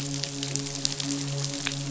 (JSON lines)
{"label": "biophony, midshipman", "recorder": "SoundTrap 500"}